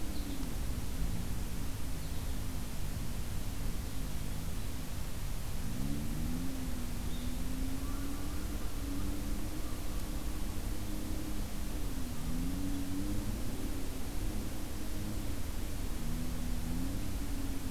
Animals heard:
American Goldfinch (Spinus tristis), Blue-headed Vireo (Vireo solitarius), American Crow (Corvus brachyrhynchos)

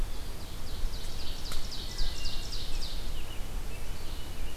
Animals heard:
Ovenbird (Seiurus aurocapilla), Wood Thrush (Hylocichla mustelina), American Robin (Turdus migratorius)

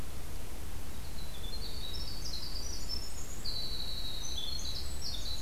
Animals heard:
Winter Wren (Troglodytes hiemalis)

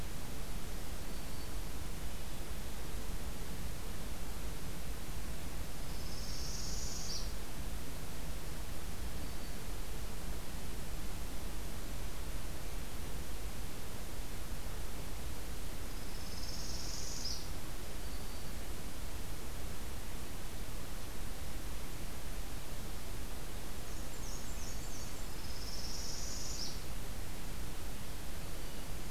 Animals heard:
Black-and-white Warbler (Mniotilta varia), Northern Parula (Setophaga americana), Black-throated Green Warbler (Setophaga virens)

